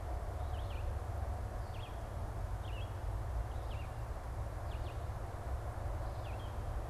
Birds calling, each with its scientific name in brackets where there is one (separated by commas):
Red-eyed Vireo (Vireo olivaceus)